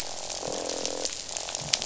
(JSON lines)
{"label": "biophony, croak", "recorder": "SoundTrap 500"}
{"label": "biophony", "recorder": "SoundTrap 500"}